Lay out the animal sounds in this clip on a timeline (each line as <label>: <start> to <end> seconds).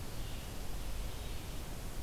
Red-eyed Vireo (Vireo olivaceus): 0.0 to 2.0 seconds